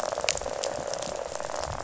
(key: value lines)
label: biophony, rattle
recorder: SoundTrap 500